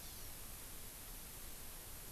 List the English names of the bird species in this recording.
Hawaii Amakihi